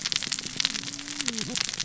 {"label": "biophony, cascading saw", "recorder": "SoundTrap 600 or HydroMoth"}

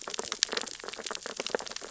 {"label": "biophony, sea urchins (Echinidae)", "recorder": "SoundTrap 600 or HydroMoth"}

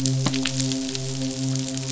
{"label": "biophony, midshipman", "recorder": "SoundTrap 500"}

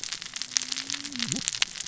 {"label": "biophony, cascading saw", "recorder": "SoundTrap 600 or HydroMoth"}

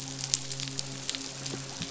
{"label": "biophony, midshipman", "recorder": "SoundTrap 500"}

